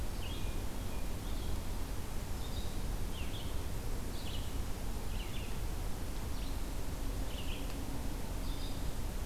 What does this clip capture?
Red-eyed Vireo, Hermit Thrush